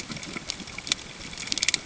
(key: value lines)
label: ambient
recorder: HydroMoth